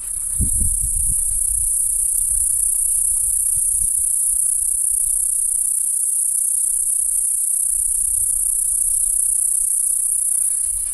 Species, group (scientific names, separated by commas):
Okanagana canescens, Cicadidae